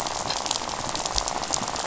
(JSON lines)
{"label": "biophony, rattle", "recorder": "SoundTrap 500"}